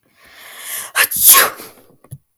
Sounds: Sneeze